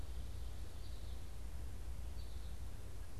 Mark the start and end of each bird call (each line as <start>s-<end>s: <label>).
0.0s-3.2s: American Goldfinch (Spinus tristis)